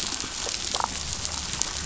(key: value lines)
label: biophony
recorder: SoundTrap 500

label: biophony, damselfish
recorder: SoundTrap 500